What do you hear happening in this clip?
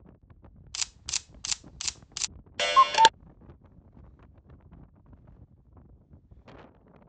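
At 0.7 seconds, you can hear a camera. Then, at 2.6 seconds, a clock is audible.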